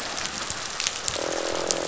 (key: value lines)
label: biophony, croak
recorder: SoundTrap 500